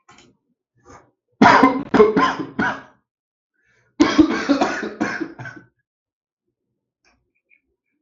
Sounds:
Cough